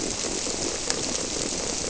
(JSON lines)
{"label": "biophony", "recorder": "SoundTrap 300"}